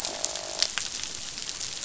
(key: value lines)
label: biophony, croak
recorder: SoundTrap 500